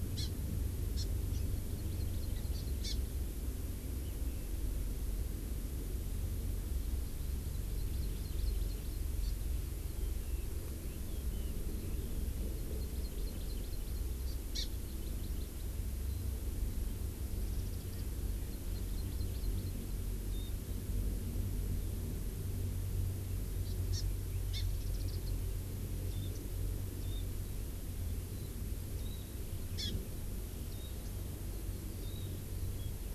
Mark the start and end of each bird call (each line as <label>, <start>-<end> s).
Hawaii Amakihi (Chlorodrepanis virens), 0.1-0.2 s
Hawaii Amakihi (Chlorodrepanis virens), 0.9-1.0 s
Hawaii Amakihi (Chlorodrepanis virens), 1.3-2.9 s
Hawaii Amakihi (Chlorodrepanis virens), 7.5-9.3 s
Red-billed Leiothrix (Leiothrix lutea), 9.9-12.2 s
Hawaii Amakihi (Chlorodrepanis virens), 12.4-15.6 s
Warbling White-eye (Zosterops japonicus), 17.4-18.0 s
Hawaii Amakihi (Chlorodrepanis virens), 18.5-19.9 s
Warbling White-eye (Zosterops japonicus), 20.3-20.5 s
Hawaii Amakihi (Chlorodrepanis virens), 23.6-24.0 s
Hawaii Amakihi (Chlorodrepanis virens), 24.5-24.6 s
Warbling White-eye (Zosterops japonicus), 24.7-25.3 s
Warbling White-eye (Zosterops japonicus), 26.0-26.3 s
Warbling White-eye (Zosterops japonicus), 26.9-27.2 s
Warbling White-eye (Zosterops japonicus), 28.9-29.4 s
Hawaii Amakihi (Chlorodrepanis virens), 29.7-29.9 s
Warbling White-eye (Zosterops japonicus), 30.7-30.9 s
Warbling White-eye (Zosterops japonicus), 32.0-32.2 s